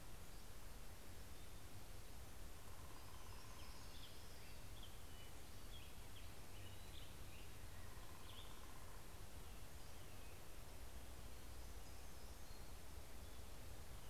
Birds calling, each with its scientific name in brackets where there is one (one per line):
Black-headed Grosbeak (Pheucticus melanocephalus)
Hermit Warbler (Setophaga occidentalis)